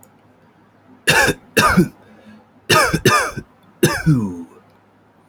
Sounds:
Cough